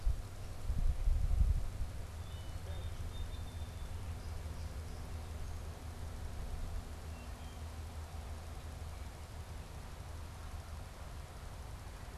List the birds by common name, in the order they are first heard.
Song Sparrow, Wood Thrush